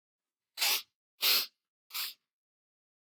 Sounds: Sniff